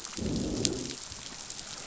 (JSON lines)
{"label": "biophony, growl", "recorder": "SoundTrap 500"}